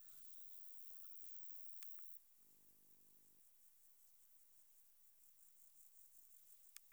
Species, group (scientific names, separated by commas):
Roeseliana roeselii, Orthoptera